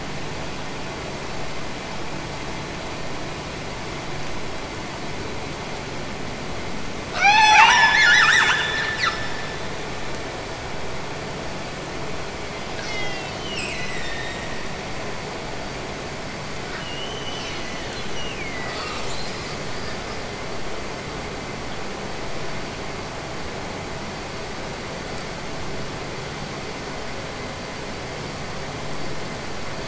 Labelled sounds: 7.1	9.7	killer whale, Bigg's (transient), Gulf of Alaska transient, 0.51 to 8.0 kHz
13.3	14.8	killer whale, Bigg's (transient), Gulf of Alaska transient, 1.6 to 8.0 kHz
16.7	18.8	killer whale, Bigg's (transient), Gulf of Alaska transient, 1.3 to 3.2 kHz

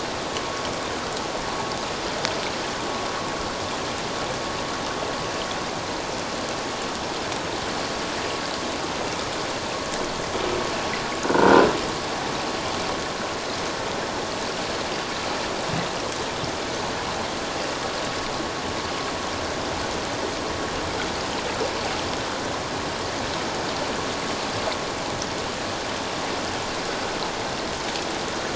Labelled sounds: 11.2	11.6	croaking sound likely from a nearby submerged object, 1.4 to 1.6 kHz

